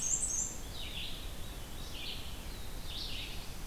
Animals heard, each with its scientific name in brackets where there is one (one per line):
Veery (Catharus fuscescens)
Red-eyed Vireo (Vireo olivaceus)
Black-and-white Warbler (Mniotilta varia)